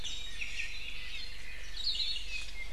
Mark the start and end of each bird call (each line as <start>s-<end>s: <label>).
0.0s-0.9s: Iiwi (Drepanis coccinea)
1.1s-1.3s: Apapane (Himatione sanguinea)
1.3s-1.9s: Omao (Myadestes obscurus)
1.7s-2.2s: Hawaii Akepa (Loxops coccineus)